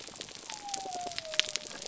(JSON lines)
{"label": "biophony", "recorder": "SoundTrap 300"}